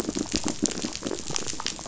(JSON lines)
{"label": "biophony, pulse", "recorder": "SoundTrap 500"}